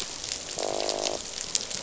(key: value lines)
label: biophony, croak
recorder: SoundTrap 500